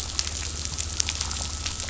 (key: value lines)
label: anthrophony, boat engine
recorder: SoundTrap 500